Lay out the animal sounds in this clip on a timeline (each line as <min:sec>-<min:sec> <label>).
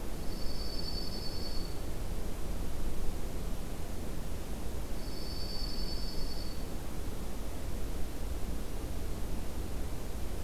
0:00.1-0:01.9 Dark-eyed Junco (Junco hyemalis)
0:04.9-0:06.8 Dark-eyed Junco (Junco hyemalis)